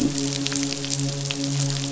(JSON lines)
{"label": "biophony, midshipman", "recorder": "SoundTrap 500"}